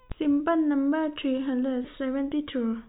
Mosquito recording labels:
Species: no mosquito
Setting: cup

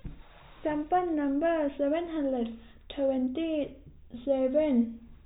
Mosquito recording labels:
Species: no mosquito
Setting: cup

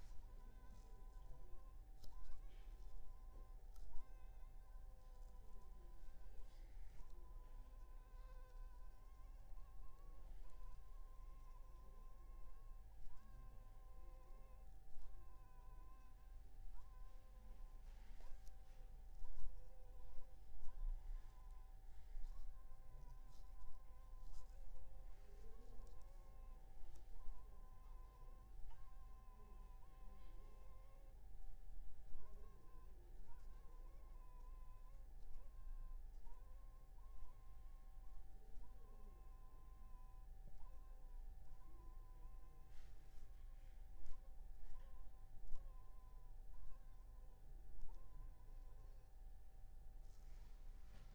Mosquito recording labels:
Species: Anopheles funestus s.s.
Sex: female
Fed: unfed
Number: one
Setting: cup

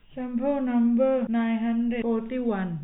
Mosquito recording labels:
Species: no mosquito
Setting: cup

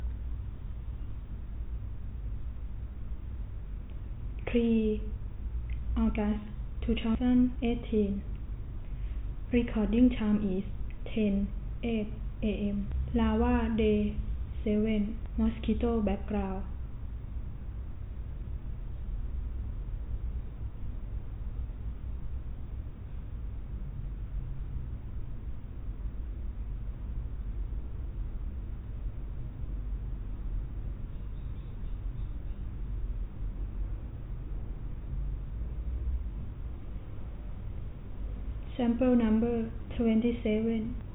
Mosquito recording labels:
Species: no mosquito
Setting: cup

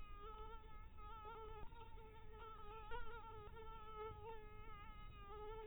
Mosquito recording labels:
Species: Anopheles harrisoni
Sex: female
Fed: blood-fed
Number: one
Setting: cup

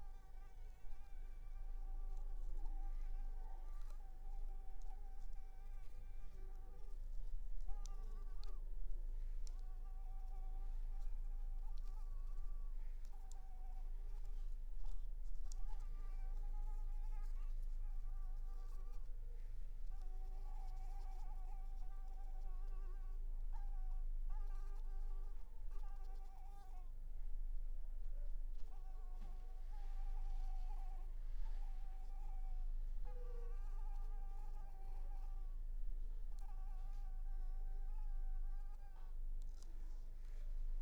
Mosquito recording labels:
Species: Anopheles arabiensis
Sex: female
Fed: unfed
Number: one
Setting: cup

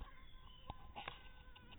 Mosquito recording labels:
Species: mosquito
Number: one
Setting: cup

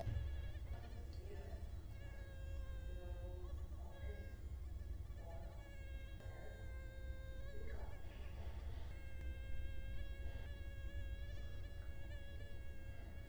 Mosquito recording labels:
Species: Culex quinquefasciatus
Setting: cup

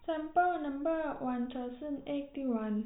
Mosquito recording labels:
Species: no mosquito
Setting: cup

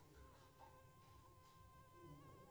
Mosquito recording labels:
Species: Culex pipiens complex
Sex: female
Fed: unfed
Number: one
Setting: cup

